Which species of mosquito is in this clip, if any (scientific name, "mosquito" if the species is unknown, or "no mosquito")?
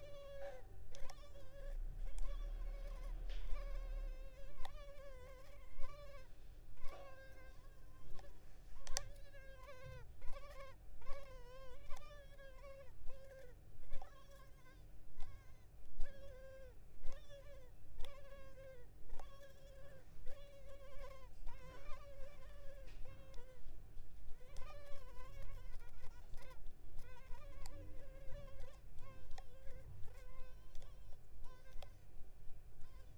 Culex pipiens complex